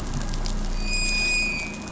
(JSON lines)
{"label": "anthrophony, boat engine", "recorder": "SoundTrap 500"}